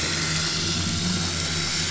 {"label": "anthrophony, boat engine", "recorder": "SoundTrap 500"}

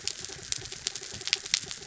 {"label": "anthrophony, mechanical", "recorder": "SoundTrap 300"}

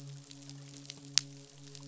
{"label": "biophony, midshipman", "recorder": "SoundTrap 500"}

